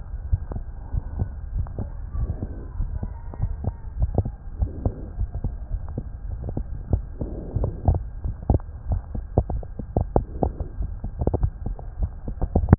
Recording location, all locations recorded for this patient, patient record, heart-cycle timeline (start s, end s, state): aortic valve (AV)
aortic valve (AV)+pulmonary valve (PV)+tricuspid valve (TV)+mitral valve (MV)
#Age: Child
#Sex: Male
#Height: 127.0 cm
#Weight: 33.0 kg
#Pregnancy status: False
#Murmur: Absent
#Murmur locations: nan
#Most audible location: nan
#Systolic murmur timing: nan
#Systolic murmur shape: nan
#Systolic murmur grading: nan
#Systolic murmur pitch: nan
#Systolic murmur quality: nan
#Diastolic murmur timing: nan
#Diastolic murmur shape: nan
#Diastolic murmur grading: nan
#Diastolic murmur pitch: nan
#Diastolic murmur quality: nan
#Outcome: Normal
#Campaign: 2015 screening campaign
0.00	0.89	unannotated
0.89	1.02	S1
1.02	1.14	systole
1.14	1.28	S2
1.28	1.49	diastole
1.49	1.66	S1
1.66	1.76	systole
1.76	1.92	S2
1.92	2.13	diastole
2.13	2.29	S1
2.29	2.40	systole
2.40	2.50	S2
2.50	2.73	diastole
2.73	2.89	S1
2.89	3.00	systole
3.00	3.12	S2
3.12	3.37	diastole
3.37	3.54	S1
3.54	3.62	systole
3.62	3.74	S2
3.74	3.98	diastole
3.98	4.12	S1
4.12	4.23	systole
4.23	4.34	S2
4.34	4.58	diastole
4.58	4.72	S1
4.72	4.82	systole
4.82	4.92	S2
4.92	5.15	diastole
5.15	5.30	S1
5.30	5.41	systole
5.41	5.52	S2
5.52	5.69	diastole
5.69	5.82	S1
5.82	5.94	systole
5.94	6.04	S2
6.04	6.27	diastole
6.27	6.42	S1
6.42	6.53	systole
6.53	6.66	S2
6.66	6.89	diastole
6.89	7.03	S1
7.03	7.18	systole
7.18	7.30	S2
7.30	7.54	diastole
7.54	7.72	S1
7.72	7.86	systole
7.86	8.02	S2
8.02	8.21	diastole
8.21	8.36	S1
8.36	8.48	systole
8.48	8.62	S2
8.62	8.85	diastole
8.85	9.00	S1
9.00	9.11	systole
9.11	9.24	S2
9.24	9.49	diastole
9.49	9.62	S1
9.62	9.75	systole
9.75	9.84	S2
9.84	10.14	diastole
10.14	10.28	S1
10.28	12.78	unannotated